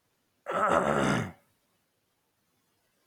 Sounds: Throat clearing